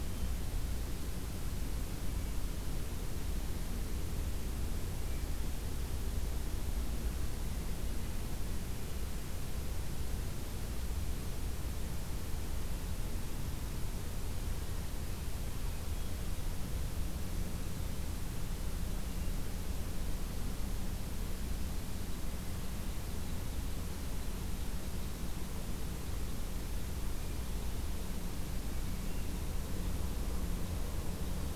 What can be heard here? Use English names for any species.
Hermit Thrush, Red Crossbill